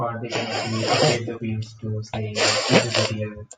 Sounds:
Sniff